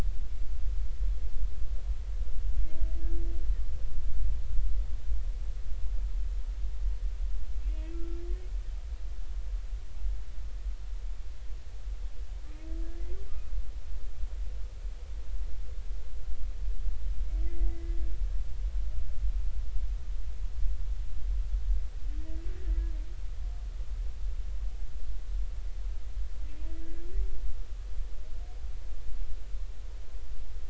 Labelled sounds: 7.9	8.2	humpback whale, 1.3 to 1.4 kHz
17.4	17.7	humpback whale, 2.0 to 2.1 kHz
26.8	27.1	humpback whale, 1.6 to 1.7 kHz

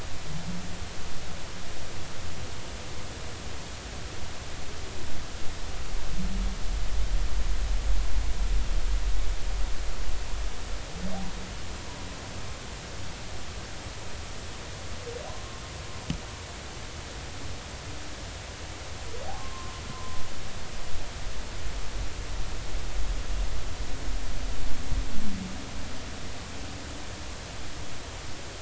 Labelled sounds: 19.3	20.2	humpback whale, 0.93 to 1.1 kHz

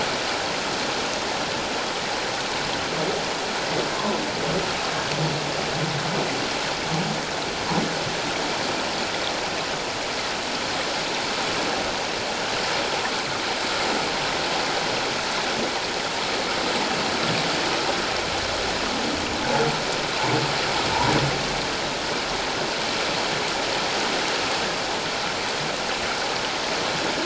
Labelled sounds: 3.9	4.2	humpback whale, 0.97 to 1.1 kHz

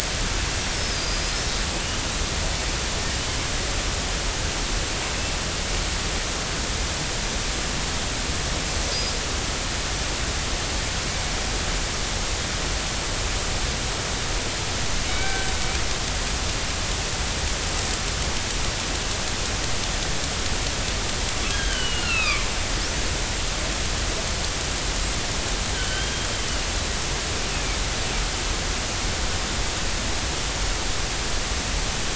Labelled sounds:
15.1	15.5	killer whale, northern resident, G clan, 1.5 to 3.9 kHz
21.5	22.5	killer whale, northern resident, G clan, 1.0 to 4.3 kHz
25.7	26.1	killer whale, northern resident, G clan, 1.4 to 3.3 kHz

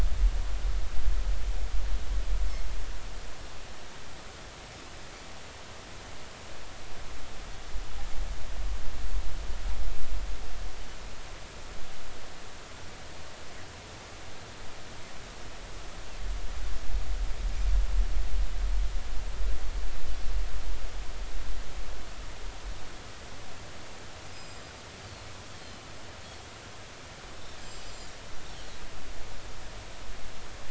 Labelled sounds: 24.3	24.8	Pacific white-sided dolphin, 2.4 to 7.6 kHz
25.0	25.3	Pacific white-sided dolphin, 4.1 to 4.5 kHz
27.6	28.1	Pacific white-sided dolphin, 4.9 to 7.4 kHz

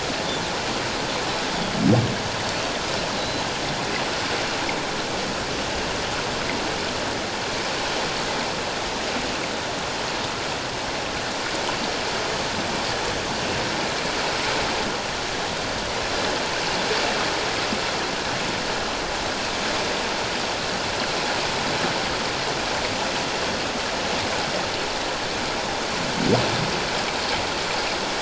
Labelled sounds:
3.2	3.4	Pacific white-sided dolphin, 3.8 to 4.1 kHz

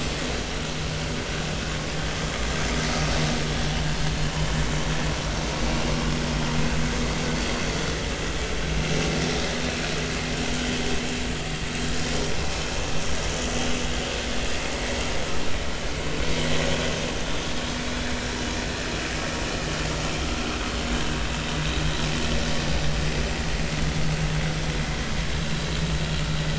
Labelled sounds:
10.6	10.8	vessel noise, 2.9 to 3.2 kHz
13.4	13.7	vessel noise, 6.0 to 6.3 kHz

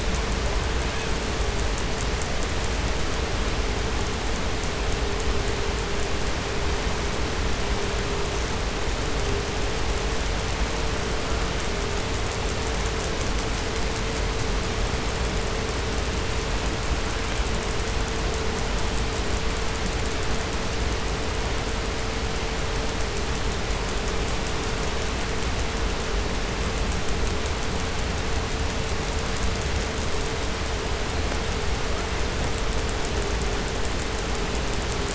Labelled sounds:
0.3	1.5	killer whale, southern resident, call S18, 0.39 to 4.1 kHz

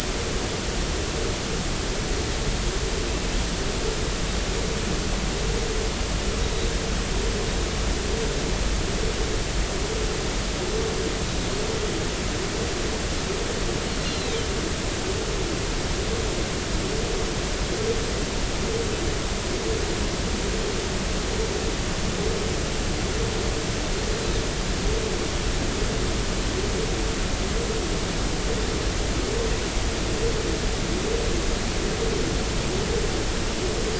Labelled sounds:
15.0	15.4	Pacific white-sided dolphin, 3.6 to 4.3 kHz

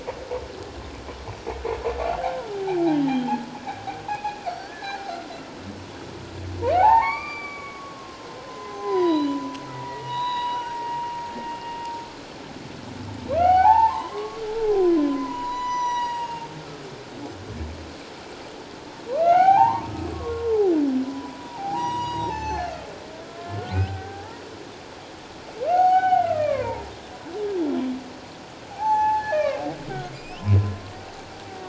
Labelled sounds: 3.0	3.4	humpback whale, 3.0 to 3.3 kHz
4.1	5.0	humpback whale, 1.5 to 4.6 kHz
6.7	11.1	humpback whale, 0.78 to 7.0 kHz
13.4	14.4	humpback whale, 0.78 to 3.0 kHz
14.7	16.5	humpback whale, 0.78 to 8.0 kHz
19.2	20.5	humpback whale, 0.78 to 3.2 kHz
21.0	22.7	humpback whale, 0.78 to 6.8 kHz
23.6	24.4	humpback whale, 0.78 to 1.9 kHz
25.7	26.9	humpback whale, 0.78 to 6.8 kHz
28.7	30.7	humpback whale, 0.78 to 6.2 kHz

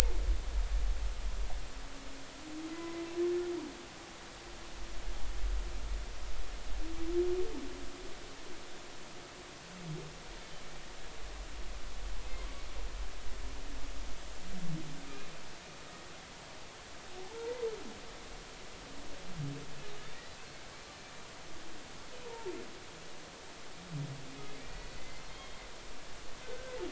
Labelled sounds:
2.7	3.0	humpback whale, 1.98 to 2.05 kHz
17.2	17.6	humpback whale, 0.80 to 0.99 kHz
22.3	22.5	humpback whale, 0.83 to 0.99 kHz
24.6	25.6	humpback whale, 1.9 to 4.4 kHz
26.4	26.8	humpback whale, 1.4 to 1.6 kHz

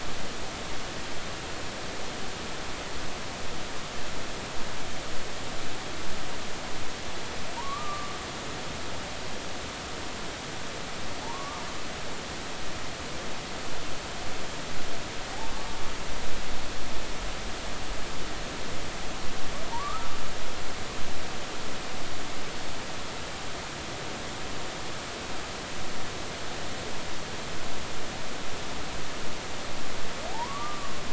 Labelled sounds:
7.6	8.1	humpback whale, 0.86 to 1.3 kHz
11.2	11.6	humpback whale, 0.80 to 1.2 kHz
15.5	15.8	humpback whale, 1.1 to 1.2 kHz
19.7	20.1	humpback whale, 0.86 to 1.4 kHz
30.3	31.0	humpback whale, 0.80 to 1.2 kHz

